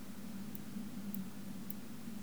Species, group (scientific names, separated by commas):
Tylopsis lilifolia, Orthoptera